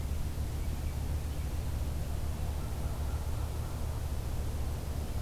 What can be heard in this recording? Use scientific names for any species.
forest ambience